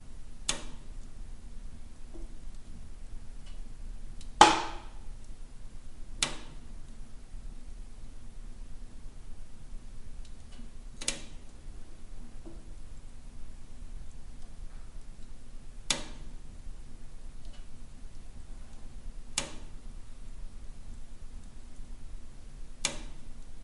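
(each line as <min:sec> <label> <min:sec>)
0:00.4 A metallic object crackles loudly indoors. 0:00.6
0:04.4 A metallic object crackles loudly indoors. 0:04.8
0:06.2 A metallic object crackles loudly indoors. 0:06.4
0:11.0 A metallic object crackles loudly indoors. 0:11.2
0:15.9 A metallic object crackles loudly indoors. 0:16.0
0:19.4 A metallic object crackles loudly indoors. 0:19.5
0:22.8 A metallic object crackles indoors. 0:23.0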